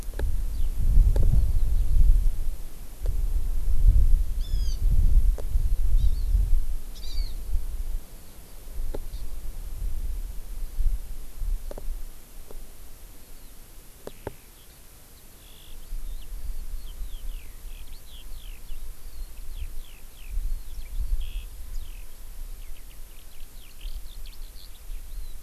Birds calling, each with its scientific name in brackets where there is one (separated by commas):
Hawaii Amakihi (Chlorodrepanis virens), Eurasian Skylark (Alauda arvensis)